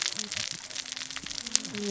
{"label": "biophony, cascading saw", "recorder": "SoundTrap 600 or HydroMoth"}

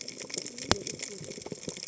{"label": "biophony, cascading saw", "recorder": "HydroMoth"}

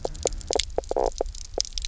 {"label": "biophony, knock croak", "recorder": "SoundTrap 300"}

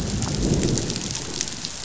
{"label": "biophony, growl", "recorder": "SoundTrap 500"}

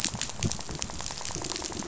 {"label": "biophony, rattle", "recorder": "SoundTrap 500"}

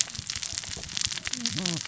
{"label": "biophony, cascading saw", "recorder": "SoundTrap 600 or HydroMoth"}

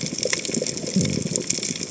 {"label": "biophony", "recorder": "HydroMoth"}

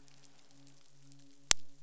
{"label": "biophony, midshipman", "recorder": "SoundTrap 500"}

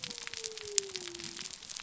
{"label": "biophony", "recorder": "SoundTrap 300"}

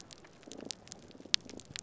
{"label": "biophony, damselfish", "recorder": "SoundTrap 300"}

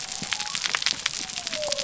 {"label": "biophony", "recorder": "SoundTrap 300"}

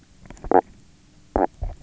{"label": "biophony, knock croak", "recorder": "SoundTrap 300"}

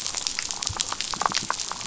{"label": "biophony", "recorder": "SoundTrap 500"}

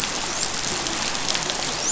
{"label": "biophony, dolphin", "recorder": "SoundTrap 500"}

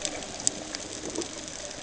{"label": "ambient", "recorder": "HydroMoth"}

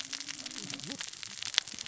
{"label": "biophony, cascading saw", "recorder": "SoundTrap 600 or HydroMoth"}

